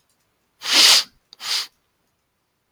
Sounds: Sniff